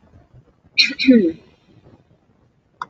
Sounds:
Throat clearing